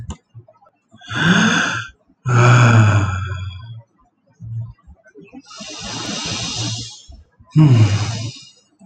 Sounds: Sigh